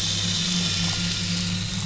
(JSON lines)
{"label": "anthrophony, boat engine", "recorder": "SoundTrap 500"}